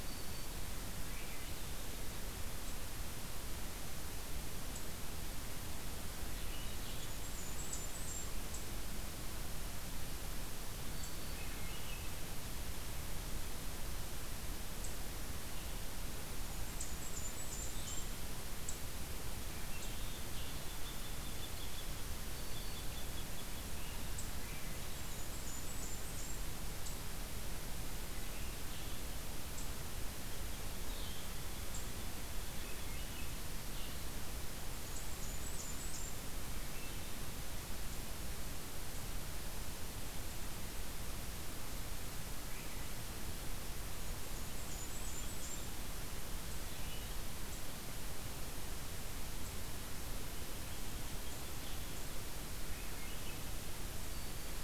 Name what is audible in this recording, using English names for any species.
Black-throated Green Warbler, Swainson's Thrush, Blackburnian Warbler, Red Crossbill, Blue-headed Vireo